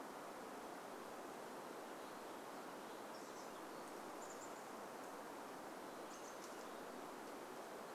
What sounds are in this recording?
unidentified sound, Chestnut-backed Chickadee call